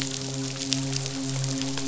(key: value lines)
label: biophony, midshipman
recorder: SoundTrap 500